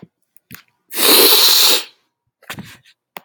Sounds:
Sniff